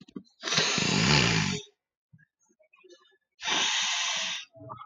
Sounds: Sniff